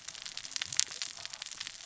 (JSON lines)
{"label": "biophony, cascading saw", "recorder": "SoundTrap 600 or HydroMoth"}